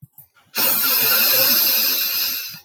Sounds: Sniff